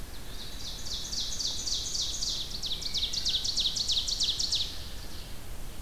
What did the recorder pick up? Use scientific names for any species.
Seiurus aurocapilla